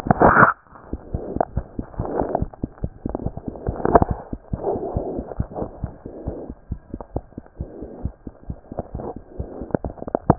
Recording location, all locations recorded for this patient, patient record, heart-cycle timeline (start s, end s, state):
mitral valve (MV)
aortic valve (AV)+pulmonary valve (PV)+tricuspid valve (TV)+mitral valve (MV)
#Age: Child
#Sex: Male
#Height: 94.0 cm
#Weight: 13.3 kg
#Pregnancy status: False
#Murmur: Absent
#Murmur locations: nan
#Most audible location: nan
#Systolic murmur timing: nan
#Systolic murmur shape: nan
#Systolic murmur grading: nan
#Systolic murmur pitch: nan
#Systolic murmur quality: nan
#Diastolic murmur timing: nan
#Diastolic murmur shape: nan
#Diastolic murmur grading: nan
#Diastolic murmur pitch: nan
#Diastolic murmur quality: nan
#Outcome: Normal
#Campaign: 2014 screening campaign
0.00	5.40	unannotated
5.40	5.48	S1
5.48	5.60	systole
5.60	5.68	S2
5.68	5.82	diastole
5.82	5.92	S1
5.92	6.02	systole
6.02	6.12	S2
6.12	6.26	diastole
6.26	6.36	S1
6.36	6.46	systole
6.46	6.56	S2
6.56	6.70	diastole
6.70	6.80	S1
6.80	6.92	systole
6.92	7.00	S2
7.00	7.16	diastole
7.16	7.24	S1
7.24	7.36	systole
7.36	7.44	S2
7.44	7.60	diastole
7.60	7.68	S1
7.68	7.80	systole
7.80	7.88	S2
7.88	8.02	diastole
8.02	8.14	S1
8.14	8.26	systole
8.26	8.34	S2
8.34	8.48	diastole
8.48	10.38	unannotated